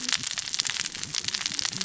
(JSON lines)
{"label": "biophony, cascading saw", "recorder": "SoundTrap 600 or HydroMoth"}